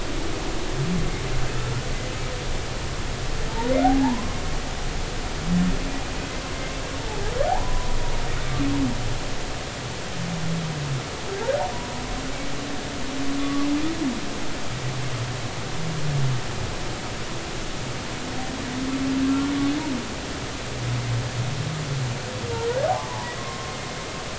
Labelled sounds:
3.8	4.4	humpback whale, 0.80 to 1.1 kHz
7.0	8.0	humpback whale, 0.80 to 1.1 kHz
11.7	12.0	humpback whale, 0.93 to 1.0 kHz
13.4	13.7	humpback whale, 1.1 to 1.2 kHz
19.3	19.5	humpback whale, 1.3 to 1.4 kHz
22.5	23.7	humpback whale, 0.83 to 1.5 kHz

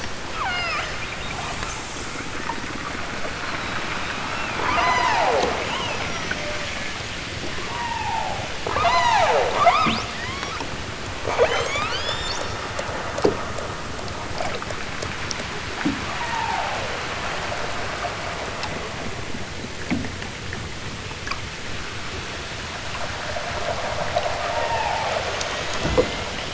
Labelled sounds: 0.3	1.3	killer whale, southern Alaska resident, 0.37 to 8.0 kHz
4.6	6.8	killer whale, southern Alaska resident, 0.18 to 8.0 kHz
7.5	10.7	killer whale, southern Alaska resident, 0.09 to 8.0 kHz
11.2	12.5	killer whale, southern Alaska resident, 0.32 to 8.0 kHz
16.0	16.9	killer whale, southern Alaska resident, 0.28 to 3.3 kHz
24.3	25.4	killer whale, southern Alaska resident, 0.37 to 3.5 kHz

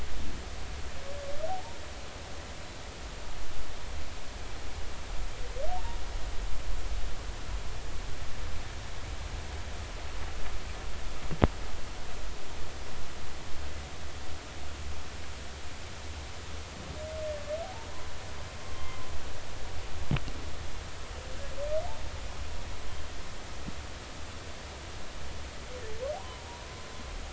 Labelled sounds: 1.5	1.8	humpback whale, 0.80 to 0.99 kHz
17.6	17.9	humpback whale, 0.80 to 0.96 kHz
18.6	19.0	humpback whale, 0.99 to 1.1 kHz
26.2	26.5	humpback whale, 0.90 to 1.1 kHz

